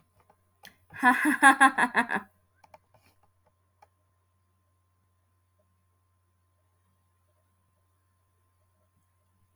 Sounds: Laughter